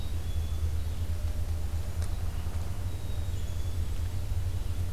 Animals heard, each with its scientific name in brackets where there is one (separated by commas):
Red-eyed Vireo (Vireo olivaceus), Black-capped Chickadee (Poecile atricapillus)